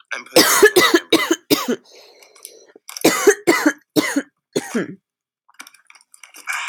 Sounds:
Cough